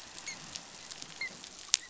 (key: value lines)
label: biophony, dolphin
recorder: SoundTrap 500